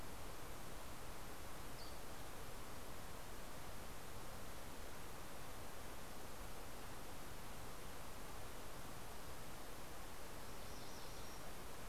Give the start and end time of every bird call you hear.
0.9s-2.5s: Dusky Flycatcher (Empidonax oberholseri)
10.0s-11.9s: MacGillivray's Warbler (Geothlypis tolmiei)

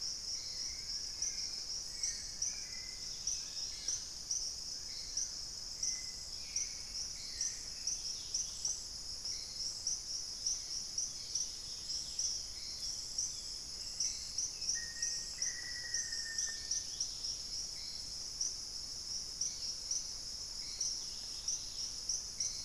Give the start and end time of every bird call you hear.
0.0s-0.6s: Thrush-like Wren (Campylorhynchus turdinus)
0.0s-5.7s: Long-billed Woodcreeper (Nasica longirostris)
0.0s-8.1s: Hauxwell's Thrush (Turdus hauxwelli)
0.0s-22.6s: Dusky-capped Greenlet (Pachysylvia hypoxantha)
9.2s-22.6s: unidentified bird
10.9s-13.9s: Long-winged Antwren (Myrmotherula longipennis)
13.7s-15.6s: Black-capped Becard (Pachyramphus marginatus)
14.7s-17.0s: Black-faced Antthrush (Formicarius analis)

